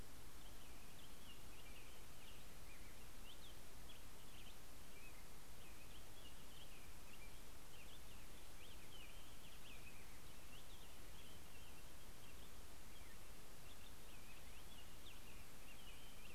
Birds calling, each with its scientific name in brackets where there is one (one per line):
American Robin (Turdus migratorius)
Black-headed Grosbeak (Pheucticus melanocephalus)